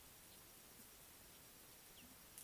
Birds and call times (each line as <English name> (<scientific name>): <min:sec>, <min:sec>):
Scarlet-chested Sunbird (Chalcomitra senegalensis): 0:02.0